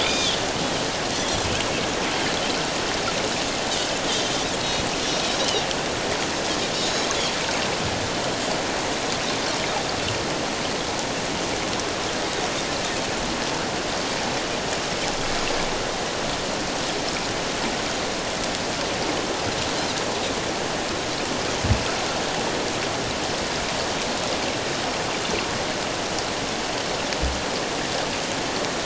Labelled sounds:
0.0	0.4	Pacific white-sided dolphin, 2.2 to 6.2 kHz
4.6	5.6	Pacific white-sided dolphin, 2.7 to 4.3 kHz

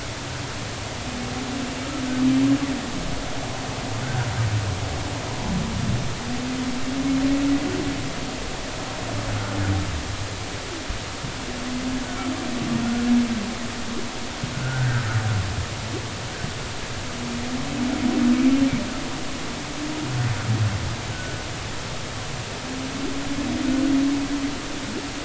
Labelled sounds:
4.0	4.3	humpback whale, 1.4 to 1.6 kHz
14.6	15.2	humpback whale, 1.3 to 1.7 kHz
21.1	21.4	humpback whale, 1.4 to 1.5 kHz

